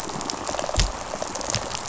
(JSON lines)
{"label": "biophony, rattle response", "recorder": "SoundTrap 500"}